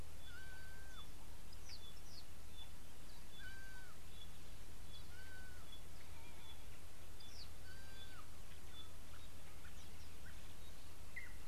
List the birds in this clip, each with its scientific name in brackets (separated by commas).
Red-fronted Prinia (Prinia rufifrons), Pygmy Batis (Batis perkeo)